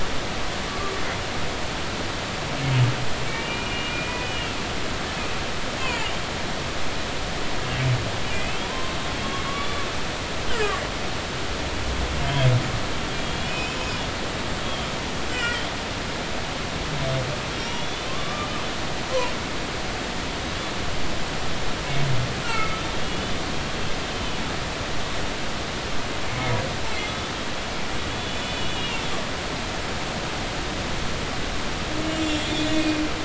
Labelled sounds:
3.3	4.6	humpback whale, 2.2 to 3.0 kHz
5.8	6.1	humpback whale, 2.2 to 3.3 kHz
8.3	9.8	humpback whale, 0.93 to 3.5 kHz
13.2	14.0	humpback whale, 2.4 to 7.2 kHz
14.6	15.6	humpback whale, 1.3 to 3.4 kHz
17.6	18.5	humpback whale, 0.99 to 5.8 kHz
22.4	23.4	humpback whale, 1.2 to 3.0 kHz
24.1	24.4	humpback whale, 2.9 to 3.1 kHz
27.1	27.3	humpback whale, 3.4 to 3.6 kHz
28.2	29.1	humpback whale, 2.6 to 3.6 kHz
32.2	33.0	humpback whale, 2.4 to 7.2 kHz

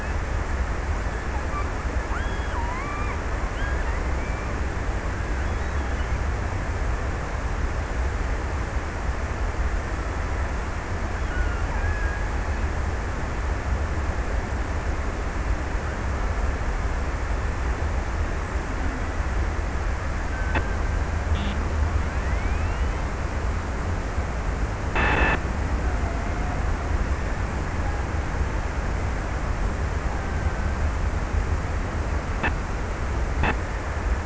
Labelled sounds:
2.0	5.5	killer whale, Bigg's (transient), 0.52 to 2.7 kHz
11.1	12.8	killer whale, Bigg's (transient), 0.60 to 2.1 kHz
19.2	21.9	killer whale, Bigg's (transient), 1.3 to 2.0 kHz

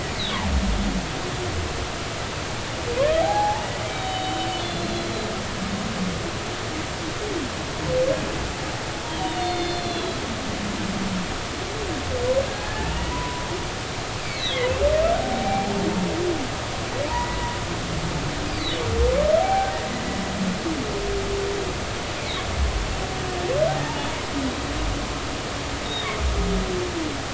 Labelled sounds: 3.2	3.6	humpback whale, 0.80 to 0.96 kHz
3.9	5.5	humpback whale, 2.9 to 4.3 kHz
9.1	10.2	humpback whale, 2.8 to 4.4 kHz
12.7	13.5	humpback whale, 0.93 to 1.8 kHz
14.2	14.6	humpback whale, 1.9 to 4.5 kHz
15.2	15.7	humpback whale, 0.80 to 2.4 kHz
17.1	17.5	humpback whale, 0.86 to 2.0 kHz
19.4	19.8	humpback whale, 0.80 to 0.86 kHz
23.8	24.1	humpback whale, 0.83 to 0.99 kHz
25.8	26.1	humpback whale, 3.6 to 3.8 kHz

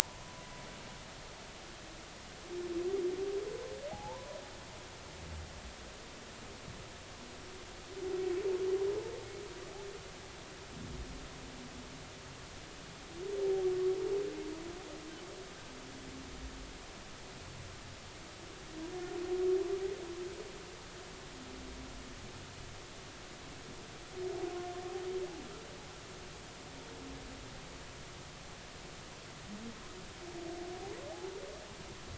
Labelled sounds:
1.0	1.4	humpback whale, 0.86 to 1.1 kHz
3.9	4.4	humpback whale, 0.80 to 1.1 kHz

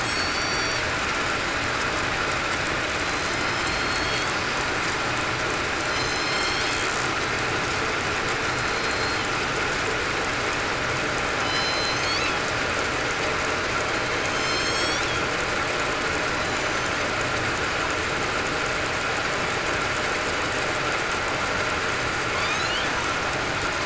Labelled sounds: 0.0	0.8	killer whale, southern resident, 4.4 to 8.0 kHz
3.3	4.3	killer whale, southern resident, 3.2 to 5.4 kHz
5.8	6.5	killer whale, southern resident, 4.1 to 6.3 kHz
8.5	9.2	killer whale, southern resident, 4.1 to 4.3 kHz
11.4	12.2	killer whale, southern resident, 3.0 to 6.3 kHz
14.3	14.9	killer whale, southern resident, 6.2 to 6.6 kHz

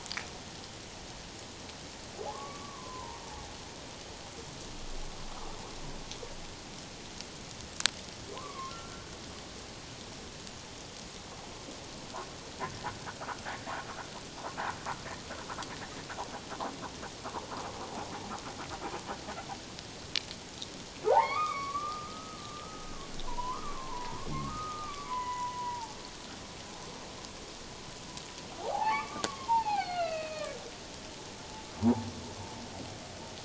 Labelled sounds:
2.3	3.2	humpback whale, 0.84 to 1.2 kHz
5.3	5.6	humpback whale, 0.94 to 1.3 kHz
8.3	8.8	humpback whale, 0.94 to 1.3 kHz
21.0	22.8	humpback whale, 0.78 to 2.5 kHz
23.3	26.0	humpback whale, 0.81 to 2.1 kHz
28.6	30.6	humpback whale, 0.78 to 4.8 kHz

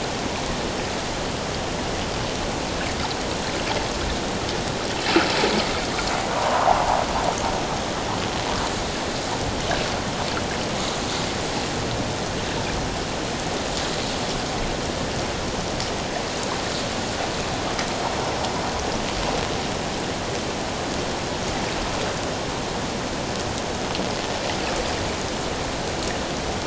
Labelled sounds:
6.4	7.0	water noise, 0.78 to 1.2 kHz

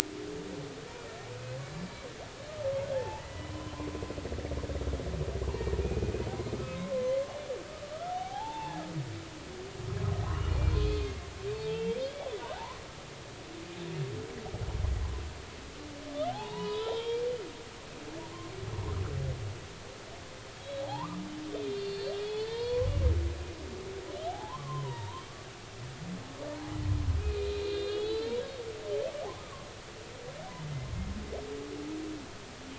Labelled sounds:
0.9	1.2	humpback whale, 2.3 to 2.4 kHz
2.9	3.9	humpback whale, 0.80 to 3.1 kHz
5.8	8.8	humpback whale, 0.80 to 2.5 kHz
10.3	11.1	humpback whale, 2.3 to 3.0 kHz
11.7	12.0	humpback whale, 2.6 to 3.3 kHz
13.0	13.3	humpback whale, 3.1 to 3.6 kHz
16.3	17.3	humpback whale, 0.80 to 4.1 kHz
20.8	22.9	humpback whale, 0.80 to 4.8 kHz
24.2	25.3	humpback whale, 0.80 to 3.9 kHz
27.2	28.4	humpback whale, 0.86 to 4.6 kHz
29.4	29.7	humpback whale, 1.0 to 1.3 kHz

